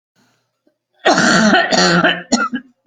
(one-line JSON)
{"expert_labels": [{"quality": "good", "cough_type": "wet", "dyspnea": true, "wheezing": false, "stridor": false, "choking": false, "congestion": false, "nothing": false, "diagnosis": "lower respiratory tract infection", "severity": "severe"}]}